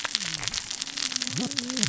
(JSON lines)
{"label": "biophony, cascading saw", "recorder": "SoundTrap 600 or HydroMoth"}